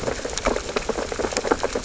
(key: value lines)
label: biophony, sea urchins (Echinidae)
recorder: SoundTrap 600 or HydroMoth